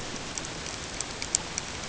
{"label": "ambient", "recorder": "HydroMoth"}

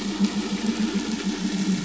{"label": "anthrophony, boat engine", "recorder": "SoundTrap 500"}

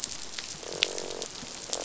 {"label": "biophony, croak", "recorder": "SoundTrap 500"}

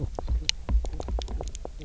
{"label": "biophony", "recorder": "SoundTrap 300"}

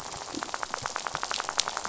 {"label": "biophony, rattle", "recorder": "SoundTrap 500"}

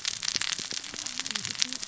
{"label": "biophony, cascading saw", "recorder": "SoundTrap 600 or HydroMoth"}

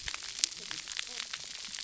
{"label": "biophony, cascading saw", "recorder": "SoundTrap 300"}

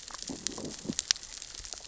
{"label": "biophony, growl", "recorder": "SoundTrap 600 or HydroMoth"}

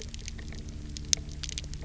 {"label": "anthrophony, boat engine", "recorder": "SoundTrap 300"}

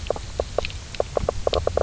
{"label": "biophony, knock croak", "recorder": "SoundTrap 300"}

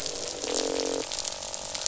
{"label": "biophony, croak", "recorder": "SoundTrap 500"}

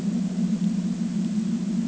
{"label": "ambient", "recorder": "HydroMoth"}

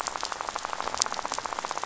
{"label": "biophony, rattle", "recorder": "SoundTrap 500"}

